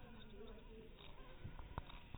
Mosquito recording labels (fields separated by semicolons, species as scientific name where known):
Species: mosquito; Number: one; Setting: cup